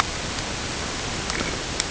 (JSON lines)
{"label": "ambient", "recorder": "HydroMoth"}